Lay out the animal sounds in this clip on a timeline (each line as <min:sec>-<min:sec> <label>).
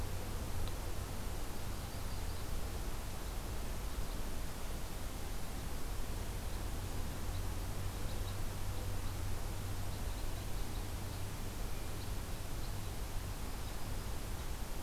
0:01.4-0:02.6 Yellow-rumped Warbler (Setophaga coronata)
0:03.8-0:14.8 Red Crossbill (Loxia curvirostra)
0:13.3-0:14.1 Yellow-rumped Warbler (Setophaga coronata)